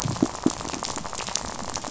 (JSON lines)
{"label": "biophony, rattle", "recorder": "SoundTrap 500"}